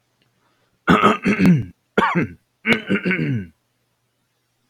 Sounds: Throat clearing